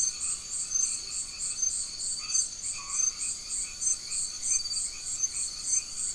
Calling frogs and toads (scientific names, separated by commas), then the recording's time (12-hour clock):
Boana albomarginata
9:15pm